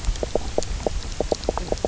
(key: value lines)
label: biophony, knock croak
recorder: SoundTrap 300